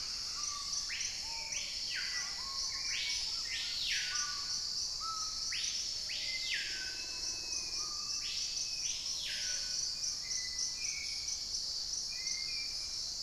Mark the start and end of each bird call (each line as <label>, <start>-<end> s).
Hauxwell's Thrush (Turdus hauxwelli), 0.0-6.8 s
Screaming Piha (Lipaugus vociferans), 0.0-13.2 s
Cinereous Mourner (Laniocera hypopyrra), 6.5-10.3 s
Plumbeous Pigeon (Patagioenas plumbea), 9.0-10.0 s
Hauxwell's Thrush (Turdus hauxwelli), 10.2-13.2 s
Dusky-capped Greenlet (Pachysylvia hypoxantha), 10.6-13.2 s